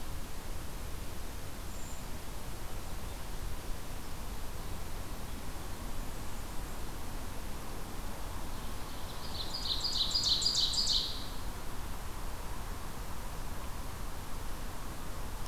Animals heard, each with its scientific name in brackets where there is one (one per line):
Blackburnian Warbler (Setophaga fusca)
Brown Creeper (Certhia americana)
Ovenbird (Seiurus aurocapilla)